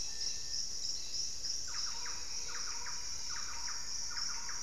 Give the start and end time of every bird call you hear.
0.0s-0.8s: Gray Antbird (Cercomacra cinerascens)
0.0s-3.8s: Cobalt-winged Parakeet (Brotogeris cyanoptera)
1.5s-4.6s: Thrush-like Wren (Campylorhynchus turdinus)

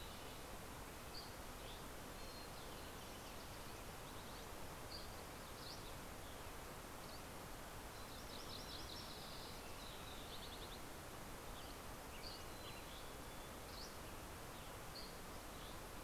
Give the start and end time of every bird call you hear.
0.0s-0.6s: Spotted Towhee (Pipilo maculatus)
0.0s-1.2s: Red-breasted Nuthatch (Sitta canadensis)
1.0s-2.1s: Dusky Flycatcher (Empidonax oberholseri)
4.7s-7.5s: Dusky Flycatcher (Empidonax oberholseri)
7.7s-9.2s: MacGillivray's Warbler (Geothlypis tolmiei)
9.0s-11.0s: Spotted Towhee (Pipilo maculatus)
11.3s-15.9s: Dusky Flycatcher (Empidonax oberholseri)
12.3s-13.8s: Mountain Chickadee (Poecile gambeli)

